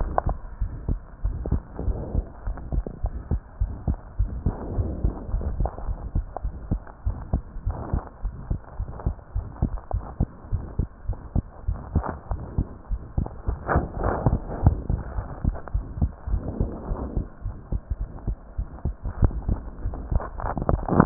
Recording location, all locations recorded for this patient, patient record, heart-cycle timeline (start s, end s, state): pulmonary valve (PV)
aortic valve (AV)+pulmonary valve (PV)+tricuspid valve (TV)+mitral valve (MV)
#Age: Child
#Sex: Female
#Height: 115.0 cm
#Weight: 19.6 kg
#Pregnancy status: False
#Murmur: Present
#Murmur locations: aortic valve (AV)+mitral valve (MV)+pulmonary valve (PV)+tricuspid valve (TV)
#Most audible location: pulmonary valve (PV)
#Systolic murmur timing: Early-systolic
#Systolic murmur shape: Decrescendo
#Systolic murmur grading: II/VI
#Systolic murmur pitch: Low
#Systolic murmur quality: Blowing
#Diastolic murmur timing: nan
#Diastolic murmur shape: nan
#Diastolic murmur grading: nan
#Diastolic murmur pitch: nan
#Diastolic murmur quality: nan
#Outcome: Abnormal
#Campaign: 2015 screening campaign
0.00	0.58	unannotated
0.58	0.72	S1
0.72	0.86	systole
0.86	1.00	S2
1.00	1.24	diastole
1.24	1.40	S1
1.40	1.50	systole
1.50	1.62	S2
1.62	1.84	diastole
1.84	2.00	S1
2.00	2.14	systole
2.14	2.26	S2
2.26	2.46	diastole
2.46	2.56	S1
2.56	2.70	systole
2.70	2.84	S2
2.84	3.02	diastole
3.02	3.12	S1
3.12	3.30	systole
3.30	3.42	S2
3.42	3.58	diastole
3.58	3.72	S1
3.72	3.86	systole
3.86	3.98	S2
3.98	4.16	diastole
4.16	4.30	S1
4.30	4.44	systole
4.44	4.54	S2
4.54	4.70	diastole
4.70	4.88	S1
4.88	5.02	systole
5.02	5.16	S2
5.16	5.32	diastole
5.32	5.48	S1
5.48	5.58	systole
5.58	5.70	S2
5.70	5.86	diastole
5.86	5.98	S1
5.98	6.12	systole
6.12	6.26	S2
6.26	6.44	diastole
6.44	6.54	S1
6.54	6.70	systole
6.70	6.82	S2
6.82	7.04	diastole
7.04	7.18	S1
7.18	7.32	systole
7.32	7.42	S2
7.42	7.64	diastole
7.64	7.76	S1
7.76	7.92	systole
7.92	8.04	S2
8.04	8.24	diastole
8.24	8.34	S1
8.34	8.48	systole
8.48	8.60	S2
8.60	8.80	diastole
8.80	8.88	S1
8.88	9.04	systole
9.04	9.18	S2
9.18	9.36	diastole
9.36	9.46	S1
9.46	9.60	systole
9.60	9.74	S2
9.74	9.94	diastole
9.94	10.04	S1
10.04	10.18	systole
10.18	10.32	S2
10.32	10.52	diastole
10.52	10.66	S1
10.66	10.80	systole
10.80	10.88	S2
10.88	11.08	diastole
11.08	11.18	S1
11.18	11.36	systole
11.36	11.46	S2
11.46	11.66	diastole
11.66	11.78	S1
11.78	11.94	systole
11.94	12.06	S2
12.06	12.30	diastole
12.30	12.42	S1
12.42	12.56	systole
12.56	12.66	S2
12.66	12.90	diastole
12.90	13.00	S1
13.00	13.16	systole
13.16	13.30	S2
13.30	13.46	diastole
13.46	13.60	S1
13.60	13.70	systole
13.70	13.86	S2
13.86	14.02	diastole
14.02	14.16	S1
14.16	14.26	systole
14.26	14.42	S2
14.42	14.62	diastole
14.62	14.80	S1
14.80	14.88	systole
14.88	15.00	S2
15.00	15.16	diastole
15.16	15.26	S1
15.26	15.42	systole
15.42	15.56	S2
15.56	15.73	diastole
15.73	15.88	S1
15.88	16.00	systole
16.00	16.12	S2
16.12	16.28	diastole
16.28	16.42	S1
16.42	16.58	systole
16.58	16.70	S2
16.70	16.88	diastole
16.88	17.00	S1
17.00	17.14	systole
17.14	17.26	S2
17.26	17.44	diastole
17.44	17.54	S1
17.54	17.72	systole
17.72	17.82	S2
17.82	18.00	diastole
18.00	18.08	S1
18.08	18.26	systole
18.26	18.36	S2
18.36	18.58	diastole
18.58	18.66	S1
18.66	18.84	systole
18.84	18.96	S2
18.96	21.06	unannotated